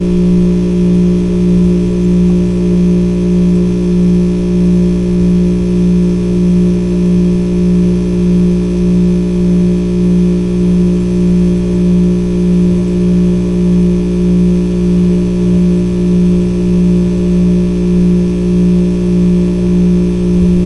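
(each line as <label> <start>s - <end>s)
A coffee machine making coffee. 0.0s - 20.7s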